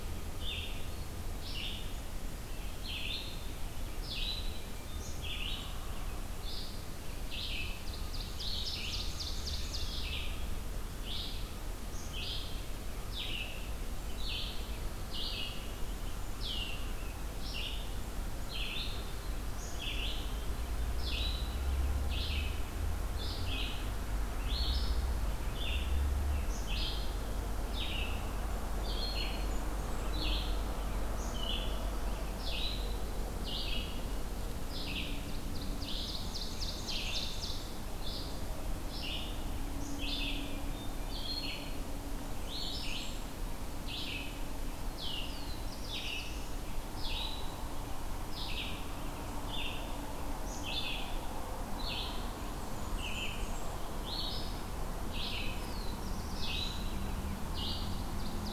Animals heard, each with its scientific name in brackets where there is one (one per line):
Black-throated Blue Warbler (Setophaga caerulescens)
Red-eyed Vireo (Vireo olivaceus)
Hermit Thrush (Catharus guttatus)
Ovenbird (Seiurus aurocapilla)
Black-capped Chickadee (Poecile atricapillus)
Blackburnian Warbler (Setophaga fusca)